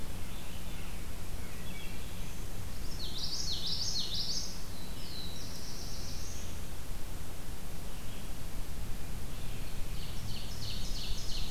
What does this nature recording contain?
Red-eyed Vireo, Wood Thrush, Common Yellowthroat, Black-throated Blue Warbler, Ovenbird